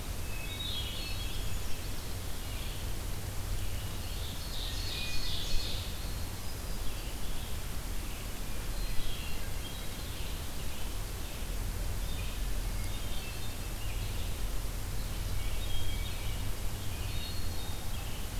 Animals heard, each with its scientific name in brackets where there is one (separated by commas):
Hermit Thrush (Catharus guttatus), Ovenbird (Seiurus aurocapilla), Red-eyed Vireo (Vireo olivaceus)